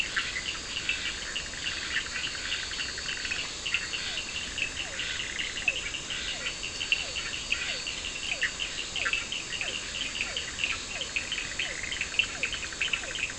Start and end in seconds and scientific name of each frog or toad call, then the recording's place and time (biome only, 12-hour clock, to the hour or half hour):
0.0	13.3	Elachistocleis bicolor
0.0	13.3	Sphaenorhynchus surdus
0.1	3.4	Boana bischoffi
3.7	5.5	Boana bischoffi
4.0	13.3	Physalaemus cuvieri
8.4	9.2	Boana bischoffi
11.3	13.3	Boana bischoffi
Atlantic Forest, ~11pm